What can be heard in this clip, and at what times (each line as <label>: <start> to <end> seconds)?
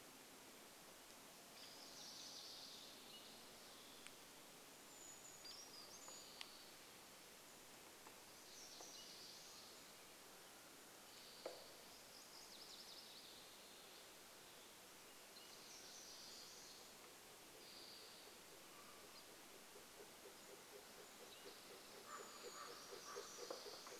unidentified sound: 0 to 2 seconds
Spotted Towhee song: 2 to 4 seconds
Townsend's Solitaire call: 2 to 4 seconds
warbler song: 2 to 4 seconds
Hairy Woodpecker call: 4 to 6 seconds
Brown Creeper song: 4 to 8 seconds
unidentified sound: 6 to 12 seconds
Common Raven call: 8 to 10 seconds
MacGillivray's Warbler song: 12 to 14 seconds
Spotted Towhee song: 14 to 16 seconds
Townsend's Solitaire call: 14 to 16 seconds
unidentified sound: 16 to 20 seconds
bird wingbeats: 16 to 24 seconds
Spotted Towhee song: 20 to 22 seconds
Townsend's Solitaire call: 20 to 22 seconds
Brown Creeper song: 22 to 24 seconds
Common Raven call: 22 to 24 seconds